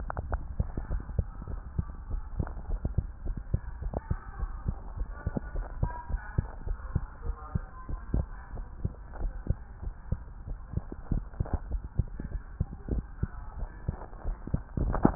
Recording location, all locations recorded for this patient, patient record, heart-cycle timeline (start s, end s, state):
tricuspid valve (TV)
aortic valve (AV)+pulmonary valve (PV)+tricuspid valve (TV)+mitral valve (MV)
#Age: Child
#Sex: Female
#Height: 141.0 cm
#Weight: 35.1 kg
#Pregnancy status: False
#Murmur: Absent
#Murmur locations: nan
#Most audible location: nan
#Systolic murmur timing: nan
#Systolic murmur shape: nan
#Systolic murmur grading: nan
#Systolic murmur pitch: nan
#Systolic murmur quality: nan
#Diastolic murmur timing: nan
#Diastolic murmur shape: nan
#Diastolic murmur grading: nan
#Diastolic murmur pitch: nan
#Diastolic murmur quality: nan
#Outcome: Abnormal
#Campaign: 2015 screening campaign
0.00	1.26	unannotated
1.26	1.50	diastole
1.50	1.60	S1
1.60	1.76	systole
1.76	1.86	S2
1.86	2.10	diastole
2.10	2.24	S1
2.24	2.34	systole
2.34	2.48	S2
2.48	2.66	diastole
2.66	2.80	S1
2.80	2.96	systole
2.96	3.08	S2
3.08	3.26	diastole
3.26	3.38	S1
3.38	3.50	systole
3.50	3.60	S2
3.60	3.78	diastole
3.78	3.92	S1
3.92	4.06	systole
4.06	4.18	S2
4.18	4.40	diastole
4.40	4.52	S1
4.52	4.66	systole
4.66	4.76	S2
4.76	4.94	diastole
4.94	5.08	S1
5.08	5.22	systole
5.22	5.34	S2
5.34	5.54	diastole
5.54	5.68	S1
5.68	5.78	systole
5.78	5.90	S2
5.90	6.10	diastole
6.10	6.22	S1
6.22	6.30	systole
6.30	6.44	S2
6.44	6.64	diastole
6.64	6.78	S1
6.78	6.94	systole
6.94	7.04	S2
7.04	7.24	diastole
7.24	7.36	S1
7.36	7.52	systole
7.52	7.66	S2
7.66	7.86	diastole
7.86	8.00	S1
8.00	8.12	systole
8.12	8.26	S2
8.26	8.54	diastole
8.54	8.66	S1
8.66	8.82	systole
8.82	8.92	S2
8.92	9.18	diastole
9.18	9.32	S1
9.32	9.48	systole
9.48	9.62	S2
9.62	9.84	diastole
9.84	9.94	S1
9.94	10.08	systole
10.08	10.20	S2
10.20	10.48	diastole
10.48	10.58	S1
10.58	10.72	systole
10.72	10.84	S2
10.84	11.10	diastole
11.10	11.24	S1
11.24	11.38	systole
11.38	11.48	S2
11.48	11.68	diastole
11.68	11.82	S1
11.82	11.98	systole
11.98	12.12	S2
12.12	12.32	diastole
12.32	12.42	S1
12.42	12.56	systole
12.56	12.68	S2
12.68	12.90	diastole
12.90	13.06	S1
13.06	13.18	systole
13.18	13.32	S2
13.32	13.56	diastole
13.56	13.70	S1
13.70	13.86	systole
13.86	13.98	S2
13.98	14.26	diastole
14.26	14.38	S1
14.38	14.52	systole
14.52	14.64	S2
14.64	14.76	diastole
14.76	15.15	unannotated